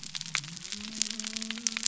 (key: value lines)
label: biophony
recorder: SoundTrap 300